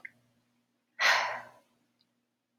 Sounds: Sigh